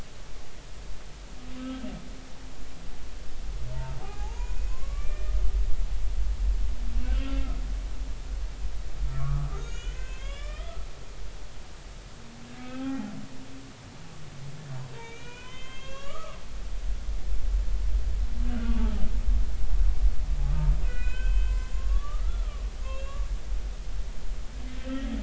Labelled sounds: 3.7	5.4	humpback whale, 0.80 to 2.6 kHz
9.1	10.9	humpback whale, 1.1 to 7.0 kHz
12.6	13.0	humpback whale, 1.2 to 1.7 kHz
14.9	16.4	humpback whale, 0.93 to 7.1 kHz
18.8	19.0	humpback whale, 1.2 to 1.4 kHz
20.8	23.2	humpback whale, 0.99 to 7.2 kHz

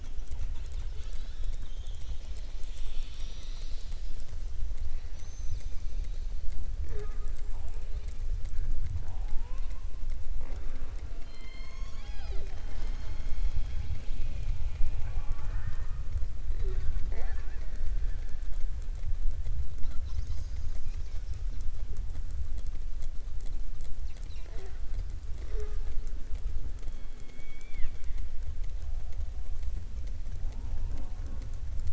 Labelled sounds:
27.1	28.3	killer whale, southern resident, 1.2 to 4.3 kHz

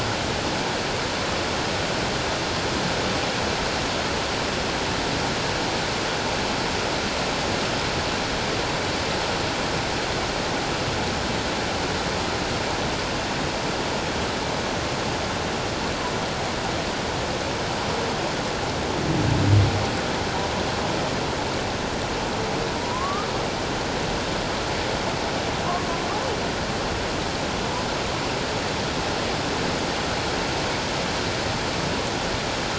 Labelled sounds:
22.8	23.3	humpback whale, 0.91 to 1.3 kHz

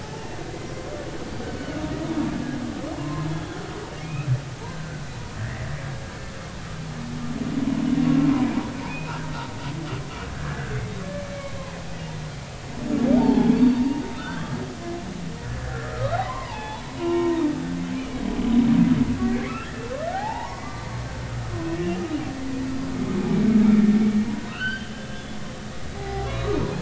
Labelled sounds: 0.2	0.4	humpback whale, 1.8 to 1.9 kHz
1.6	1.8	humpback whale, 1.4 to 1.6 kHz
2.9	3.6	humpback whale, 0.96 to 3.5 kHz
4.0	5.0	humpback whale, 1.5 to 2.8 kHz
5.4	5.7	humpback whale, 1.6 to 2.0 kHz
8.9	9.2	humpback whale, 2.4 to 2.8 kHz
10.3	11.5	humpback whale, 1.5 to 2.3 kHz
13.2	14.5	humpback whale, 0.80 to 4.6 kHz
15.6	17.4	humpback whale, 0.80 to 3.6 kHz
19.2	20.9	humpback whale, 0.80 to 2.9 kHz
21.8	22.0	humpback whale, 2.7 to 3.0 kHz
24.2	25.4	humpback whale, 0.86 to 4.7 kHz
25.9	26.6	humpback whale, 0.80 to 2.0 kHz

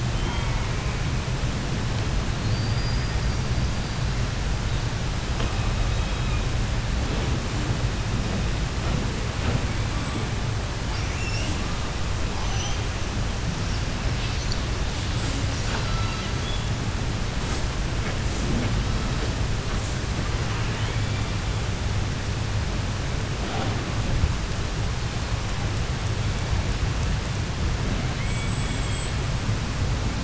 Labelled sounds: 0.0	1.4	killer whale, 0.34 to 3.7 kHz
2.2	4.1	killer whale, 3.8 to 5.4 kHz
5.1	6.7	killer whale, southern resident, call S16, 0.10 to 5.4 kHz
9.6	10.6	killer whale, 0.59 to 7.9 kHz
10.9	12.9	killer whale, 0.25 to 8.0 kHz
14.1	16.7	killer whale, 0.26 to 8.0 kHz
17.3	17.6	killer whale, 0.42 to 8.0 kHz
18.2	18.5	killer whale, 5.4 to 8.0 kHz
18.8	19.5	killer whale, 0.65 to 5.8 kHz
19.7	20.0	killer whale, 5.5 to 8.0 kHz
20.6	21.9	killer whale, 1.0 to 7.8 kHz
24.4	25.5	killer whale, 3.1 to 4.6 kHz
25.9	26.7	killer whale, 2.0 to 5.1 kHz
28.1	29.3	killer whale, southern resident, 1.7 to 8.0 kHz

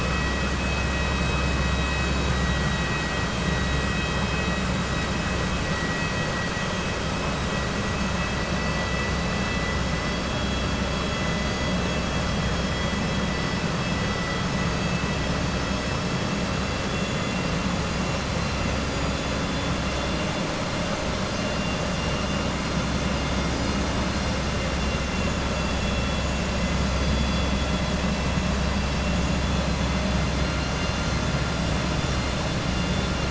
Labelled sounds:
24.8	25.3	vessel noise, 2.0 to 3.5 kHz

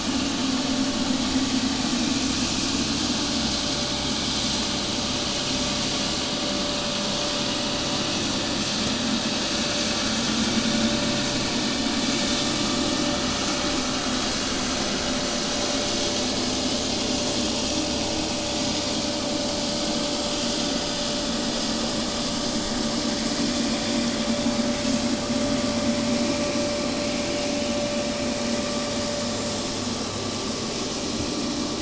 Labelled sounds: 15.9	27.4	vessel noise, 0 to 8.0 kHz

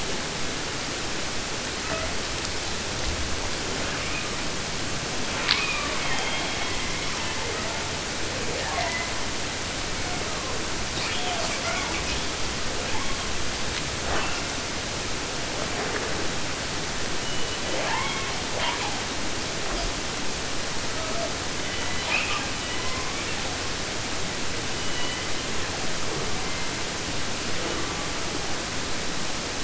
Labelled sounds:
1.8	2.2	killer whale, 0.08 to 3.2 kHz
3.7	4.4	killer whale, 0.10 to 3.2 kHz
5.3	8.0	killer whale, southern resident, 0.50 to 5.7 kHz
8.2	9.3	killer whale, 0.10 to 4.9 kHz
9.9	10.7	killer whale, 0.20 to 2.5 kHz
10.9	12.4	killer whale, southern resident, 0.14 to 8.0 kHz
12.7	13.4	killer whale, southern resident, J pod, call S44, 0.14 to 3.8 kHz
14.0	14.6	killer whale, 0.08 to 8.0 kHz
17.2	18.4	killer whale, southern resident, 0.04 to 4.2 kHz
18.5	19.1	killer whale, 0.10 to 8.0 kHz
19.6	19.9	killer whale, 0.34 to 5.5 kHz
20.8	21.3	killer whale, 0.24 to 2.5 kHz
21.5	23.6	killer whale, southern resident, J pod, call S01, 0.50 to 5.7 kHz
24.7	26.1	killer whale, southern resident, J pod, call S01, 0.38 to 3.9 kHz
26.3	26.9	killer whale, 1.4 to 2.6 kHz
27.5	28.6	killer whale, southern resident, J pod, call S01 and call S04, 0 to 3.5 kHz

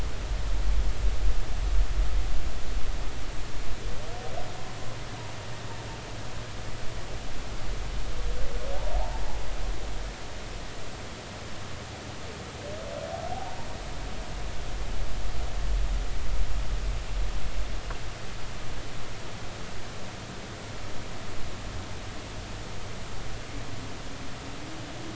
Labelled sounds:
9.0	9.2	humpback whale, 0.80 to 0.99 kHz
13.3	13.7	humpback whale, 0.80 to 0.99 kHz

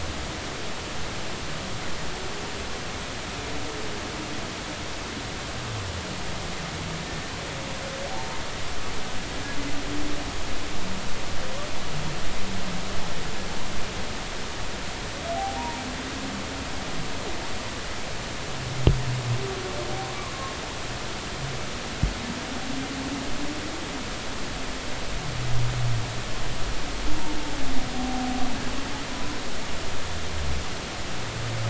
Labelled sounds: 8.1	8.4	humpback whale, 0.86 to 1.1 kHz
15.4	15.8	humpback whale, 0.80 to 1.0 kHz

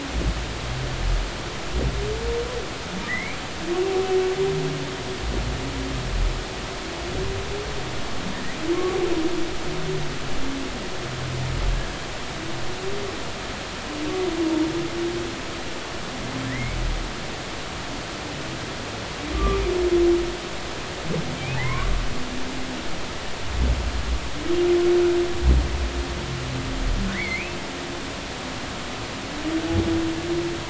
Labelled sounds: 3.1	3.4	humpback whale, 1.7 to 2.4 kHz
16.5	16.8	humpback whale, 1.7 to 2.3 kHz
19.3	19.6	humpback whale, 1.1 to 1.2 kHz
21.4	21.9	humpback whale, 0.96 to 2.6 kHz
27.1	27.6	humpback whale, 1.7 to 2.7 kHz

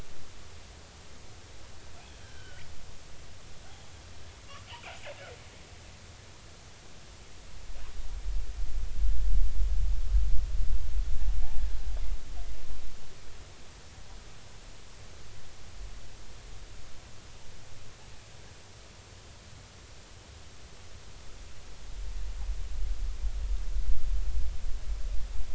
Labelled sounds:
2.2	2.6	killer whale, northern resident, G clan, call N40, 1.4 to 3.1 kHz
3.7	3.9	killer whale, northern resident, G clan, 0.80 to 0.86 kHz

